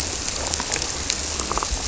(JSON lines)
{"label": "biophony", "recorder": "SoundTrap 300"}